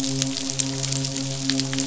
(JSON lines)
{"label": "biophony, midshipman", "recorder": "SoundTrap 500"}